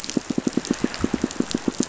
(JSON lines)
{"label": "biophony, pulse", "recorder": "SoundTrap 500"}